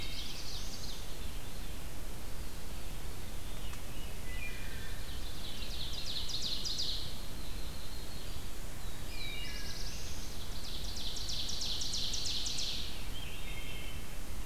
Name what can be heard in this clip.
Scarlet Tanager, Ovenbird, Black-throated Blue Warbler, Veery, Wood Thrush, Yellow-rumped Warbler